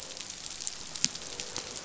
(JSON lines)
{"label": "biophony, croak", "recorder": "SoundTrap 500"}